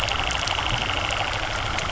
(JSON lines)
{"label": "anthrophony, boat engine", "recorder": "SoundTrap 300"}